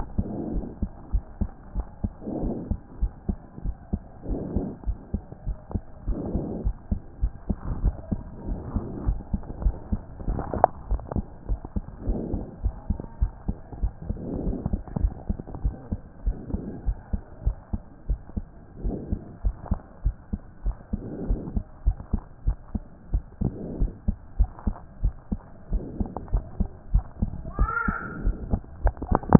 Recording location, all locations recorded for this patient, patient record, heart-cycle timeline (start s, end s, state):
aortic valve (AV)
aortic valve (AV)+pulmonary valve (PV)+tricuspid valve (TV)+mitral valve (MV)
#Age: Child
#Sex: Male
#Height: 122.0 cm
#Weight: 24.2 kg
#Pregnancy status: False
#Murmur: Absent
#Murmur locations: nan
#Most audible location: nan
#Systolic murmur timing: nan
#Systolic murmur shape: nan
#Systolic murmur grading: nan
#Systolic murmur pitch: nan
#Systolic murmur quality: nan
#Diastolic murmur timing: nan
#Diastolic murmur shape: nan
#Diastolic murmur grading: nan
#Diastolic murmur pitch: nan
#Diastolic murmur quality: nan
#Outcome: Abnormal
#Campaign: 2014 screening campaign
0.00	0.52	unannotated
0.52	0.64	S1
0.64	0.80	systole
0.80	0.90	S2
0.90	1.12	diastole
1.12	1.24	S1
1.24	1.40	systole
1.40	1.50	S2
1.50	1.76	diastole
1.76	1.86	S1
1.86	2.02	systole
2.02	2.12	S2
2.12	2.42	diastole
2.42	2.56	S1
2.56	2.70	systole
2.70	2.78	S2
2.78	3.00	diastole
3.00	3.12	S1
3.12	3.28	systole
3.28	3.38	S2
3.38	3.64	diastole
3.64	3.76	S1
3.76	3.92	systole
3.92	4.00	S2
4.00	4.28	diastole
4.28	4.40	S1
4.40	4.54	systole
4.54	4.68	S2
4.68	4.86	diastole
4.86	4.98	S1
4.98	5.12	systole
5.12	5.22	S2
5.22	5.46	diastole
5.46	5.56	S1
5.56	5.72	systole
5.72	5.82	S2
5.82	6.06	diastole
6.06	6.20	S1
6.20	6.32	systole
6.32	6.44	S2
6.44	6.64	diastole
6.64	6.74	S1
6.74	6.90	systole
6.90	7.00	S2
7.00	7.22	diastole
7.22	7.32	S1
7.32	7.48	systole
7.48	7.56	S2
7.56	7.80	diastole
7.80	7.94	S1
7.94	8.10	systole
8.10	8.20	S2
8.20	8.48	diastole
8.48	8.60	S1
8.60	8.74	systole
8.74	8.84	S2
8.84	9.06	diastole
9.06	9.18	S1
9.18	9.32	systole
9.32	9.40	S2
9.40	9.62	diastole
9.62	9.76	S1
9.76	9.90	systole
9.90	10.00	S2
10.00	10.28	diastole
10.28	10.40	S1
10.40	10.54	systole
10.54	10.66	S2
10.66	10.90	diastole
10.90	11.02	S1
11.02	11.16	systole
11.16	11.26	S2
11.26	11.48	diastole
11.48	11.60	S1
11.60	11.74	systole
11.74	11.84	S2
11.84	12.06	diastole
12.06	12.20	S1
12.20	12.32	systole
12.32	12.42	S2
12.42	12.64	diastole
12.64	12.74	S1
12.74	12.88	systole
12.88	12.98	S2
12.98	13.20	diastole
13.20	13.32	S1
13.32	13.46	systole
13.46	13.56	S2
13.56	13.80	diastole
13.80	13.92	S1
13.92	14.08	systole
14.08	14.18	S2
14.18	14.44	diastole
14.44	14.58	S1
14.58	14.70	systole
14.70	14.80	S2
14.80	15.00	diastole
15.00	15.12	S1
15.12	15.28	systole
15.28	15.38	S2
15.38	15.62	diastole
15.62	15.74	S1
15.74	15.90	systole
15.90	16.00	S2
16.00	16.24	diastole
16.24	16.36	S1
16.36	16.52	systole
16.52	16.62	S2
16.62	16.86	diastole
16.86	16.96	S1
16.96	17.12	systole
17.12	17.22	S2
17.22	17.44	diastole
17.44	17.56	S1
17.56	17.72	systole
17.72	17.80	S2
17.80	18.08	diastole
18.08	18.20	S1
18.20	18.36	systole
18.36	18.44	S2
18.44	18.84	diastole
18.84	18.96	S1
18.96	19.10	systole
19.10	19.20	S2
19.20	19.44	diastole
19.44	19.56	S1
19.56	19.70	systole
19.70	19.80	S2
19.80	20.04	diastole
20.04	20.16	S1
20.16	20.32	systole
20.32	20.40	S2
20.40	20.64	diastole
20.64	20.76	S1
20.76	20.92	systole
20.92	21.00	S2
21.00	21.26	diastole
21.26	21.40	S1
21.40	21.54	systole
21.54	21.64	S2
21.64	21.86	diastole
21.86	21.96	S1
21.96	22.12	systole
22.12	22.22	S2
22.22	22.46	diastole
22.46	22.56	S1
22.56	22.74	systole
22.74	22.82	S2
22.82	23.12	diastole
23.12	23.24	S1
23.24	23.42	systole
23.42	23.52	S2
23.52	23.80	diastole
23.80	23.92	S1
23.92	24.06	systole
24.06	24.16	S2
24.16	24.38	diastole
24.38	24.50	S1
24.50	24.66	systole
24.66	24.76	S2
24.76	25.02	diastole
25.02	25.14	S1
25.14	25.30	systole
25.30	25.40	S2
25.40	25.72	diastole
25.72	25.84	S1
25.84	25.98	systole
25.98	26.08	S2
26.08	26.32	diastole
26.32	26.44	S1
26.44	26.58	systole
26.58	26.68	S2
26.68	26.92	diastole
26.92	27.04	S1
27.04	27.20	systole
27.20	27.30	S2
27.30	27.58	diastole
27.58	27.70	S1
27.70	27.86	systole
27.86	27.96	S2
27.96	28.24	diastole
28.24	28.36	S1
28.36	28.50	systole
28.50	28.62	S2
28.62	28.84	diastole
28.84	29.39	unannotated